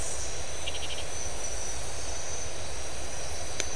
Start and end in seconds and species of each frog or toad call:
0.6	1.2	Scinax rizibilis
2:15am

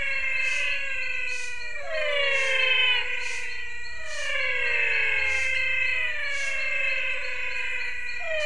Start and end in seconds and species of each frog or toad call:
0.0	8.4	Adenomera diptyx
0.0	8.4	Physalaemus albonotatus
5.4	5.7	Leptodactylus podicipinus
6:15pm

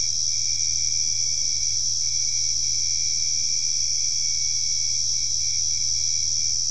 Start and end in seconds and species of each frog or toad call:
none
8:30pm

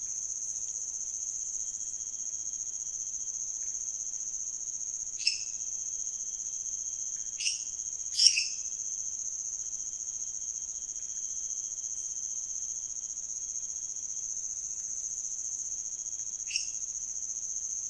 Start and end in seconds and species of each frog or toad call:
0.6	0.8	Leptodactylus podicipinus
3.6	3.8	Leptodactylus podicipinus
5.2	5.6	Dendropsophus minutus
7.4	8.7	Dendropsophus minutus
14.7	15.2	Leptodactylus podicipinus
16.5	16.8	Dendropsophus minutus
1:00am

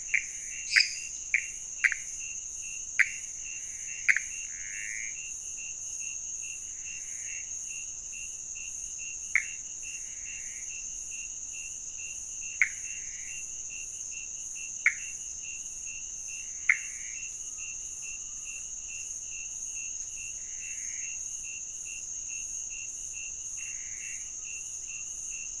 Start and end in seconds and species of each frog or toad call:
0.0	7.7	Pithecopus azureus
0.5	1.2	Dendropsophus minutus
9.0	11.1	Pithecopus azureus
12.3	17.3	Pithecopus azureus
20.3	21.4	Pithecopus azureus
23.5	24.7	Pithecopus azureus
3:15am

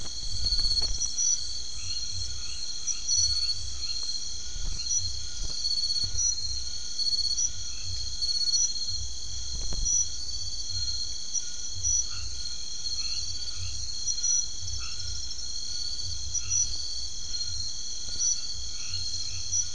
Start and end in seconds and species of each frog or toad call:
0.0	19.7	Scinax alter
1.6	5.0	Boana albomarginata
12.1	13.8	Boana albomarginata
14.8	15.2	Boana albomarginata
16.3	16.7	Boana albomarginata
18.7	19.7	Boana albomarginata
9:00pm

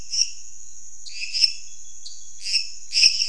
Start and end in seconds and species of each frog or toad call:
0.0	3.2	Dendropsophus minutus
1.0	1.1	Dendropsophus nanus
2.0	2.2	Dendropsophus nanus
10:00pm

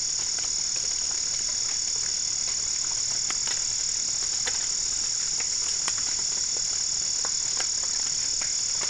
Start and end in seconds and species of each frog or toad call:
none
12:30am

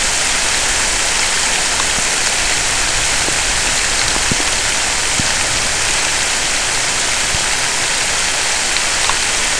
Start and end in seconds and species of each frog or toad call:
none
11:00pm

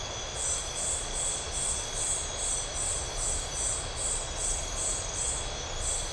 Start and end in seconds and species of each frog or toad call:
none
11:45pm

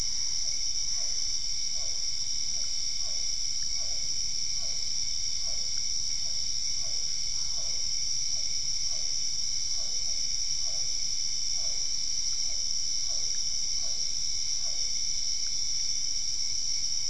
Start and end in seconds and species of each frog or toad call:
0.0	15.2	Physalaemus cuvieri
7.3	7.9	Boana albopunctata
8:15pm

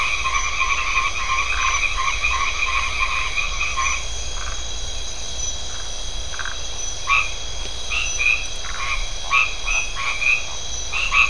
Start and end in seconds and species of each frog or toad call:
0.0	4.1	Boana albomarginata
4.3	4.6	Phyllomedusa distincta
6.3	6.6	Phyllomedusa distincta
6.8	11.2	Boana albomarginata
10:30pm

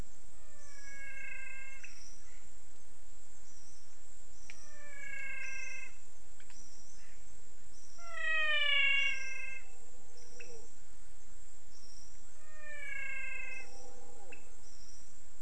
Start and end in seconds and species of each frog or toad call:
0.3	2.2	Physalaemus albonotatus
4.4	6.3	Physalaemus albonotatus
7.9	9.8	Physalaemus albonotatus
12.2	14.1	Physalaemus albonotatus
5:45pm

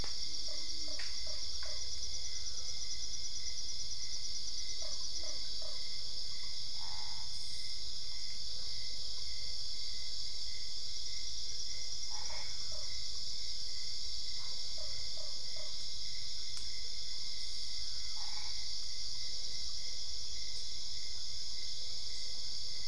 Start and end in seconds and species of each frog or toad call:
0.4	1.8	Boana lundii
4.7	5.8	Boana lundii
6.7	7.4	Boana albopunctata
12.1	12.6	Boana albopunctata
14.7	15.8	Boana lundii
18.1	18.7	Boana albopunctata
11:00pm

